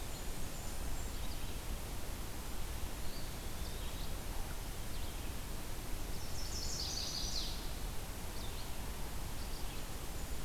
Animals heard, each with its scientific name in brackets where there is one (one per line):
Eastern Wood-Pewee (Contopus virens)
Red-eyed Vireo (Vireo olivaceus)
Chestnut-sided Warbler (Setophaga pensylvanica)
Blackburnian Warbler (Setophaga fusca)